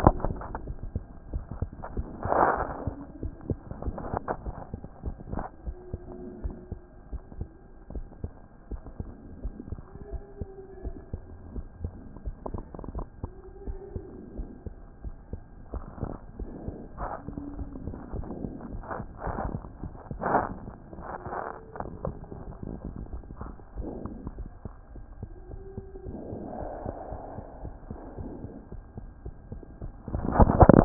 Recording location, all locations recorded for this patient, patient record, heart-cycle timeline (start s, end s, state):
mitral valve (MV)
aortic valve (AV)+pulmonary valve (PV)+tricuspid valve (TV)+mitral valve (MV)
#Age: Child
#Sex: Male
#Height: 99.0 cm
#Weight: 13.6 kg
#Pregnancy status: False
#Murmur: Absent
#Murmur locations: nan
#Most audible location: nan
#Systolic murmur timing: nan
#Systolic murmur shape: nan
#Systolic murmur grading: nan
#Systolic murmur pitch: nan
#Systolic murmur quality: nan
#Diastolic murmur timing: nan
#Diastolic murmur shape: nan
#Diastolic murmur grading: nan
#Diastolic murmur pitch: nan
#Diastolic murmur quality: nan
#Outcome: Normal
#Campaign: 2014 screening campaign
0.00	2.99	unannotated
2.99	3.22	diastole
3.22	3.32	S1
3.32	3.48	systole
3.48	3.58	S2
3.58	3.84	diastole
3.84	3.96	S1
3.96	4.12	systole
4.12	4.22	S2
4.22	4.44	diastole
4.44	4.56	S1
4.56	4.72	systole
4.72	4.82	S2
4.82	5.05	diastole
5.05	5.16	S1
5.16	5.34	systole
5.34	5.44	S2
5.44	5.66	diastole
5.66	5.76	S1
5.76	5.92	systole
5.92	6.01	S2
6.01	6.42	diastole
6.42	6.54	S1
6.54	6.70	systole
6.70	6.80	S2
6.80	7.12	diastole
7.12	7.22	S1
7.22	7.38	systole
7.38	7.48	S2
7.48	7.94	diastole
7.94	8.06	S1
8.06	8.24	systole
8.24	8.32	S2
8.32	8.70	diastole
8.70	8.80	S1
8.80	9.00	systole
9.00	9.10	S2
9.10	9.42	diastole
9.42	9.54	S1
9.54	9.70	systole
9.70	9.80	S2
9.80	10.12	diastole
10.12	10.22	S1
10.22	10.40	systole
10.40	10.48	S2
10.48	10.84	diastole
10.84	10.94	S1
10.94	11.12	systole
11.12	11.20	S2
11.20	11.54	diastole
11.54	11.66	S1
11.66	11.82	systole
11.82	11.92	S2
11.92	12.24	diastole
12.24	12.36	S1
12.36	12.52	systole
12.52	12.62	S2
12.62	12.94	diastole
12.94	13.06	S1
13.06	13.22	systole
13.22	13.32	S2
13.32	13.66	diastole
13.66	13.78	S1
13.78	13.94	systole
13.94	14.04	S2
14.04	14.36	diastole
14.36	14.48	S1
14.48	14.66	systole
14.66	14.76	S2
14.76	15.04	diastole
15.04	15.14	S1
15.14	15.32	systole
15.32	15.40	S2
15.40	15.74	diastole
15.74	15.84	S1
15.84	16.02	systole
16.02	16.14	S2
16.14	16.40	diastole
16.40	16.50	S1
16.50	16.66	systole
16.66	16.76	S2
16.76	16.98	diastole
16.98	17.10	S1
17.10	17.26	systole
17.26	17.36	S2
17.36	17.58	diastole
17.58	17.70	S1
17.70	17.84	systole
17.84	17.94	S2
17.94	18.14	diastole
18.14	18.26	S1
18.26	18.42	systole
18.42	18.52	S2
18.52	18.71	diastole
18.71	30.85	unannotated